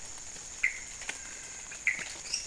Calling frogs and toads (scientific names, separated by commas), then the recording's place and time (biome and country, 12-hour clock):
Dendropsophus minutus, Leptodactylus podicipinus
Cerrado, Brazil, 12:00am